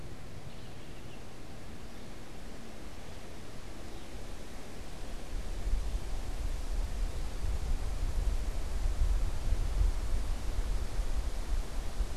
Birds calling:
Baltimore Oriole (Icterus galbula), Song Sparrow (Melospiza melodia)

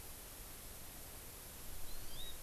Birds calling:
Hawaii Amakihi (Chlorodrepanis virens)

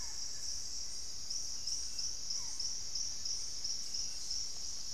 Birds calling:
unidentified bird, Buff-throated Woodcreeper (Xiphorhynchus guttatus), Barred Forest-Falcon (Micrastur ruficollis)

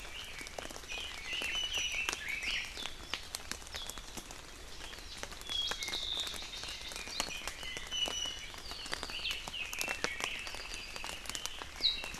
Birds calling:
Warbling White-eye (Zosterops japonicus), Iiwi (Drepanis coccinea), Red-billed Leiothrix (Leiothrix lutea), Apapane (Himatione sanguinea)

